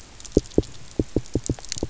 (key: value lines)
label: biophony, knock
recorder: SoundTrap 300